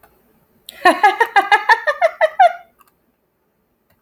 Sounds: Laughter